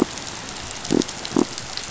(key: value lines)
label: biophony
recorder: SoundTrap 500